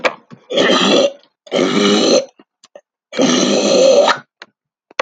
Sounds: Throat clearing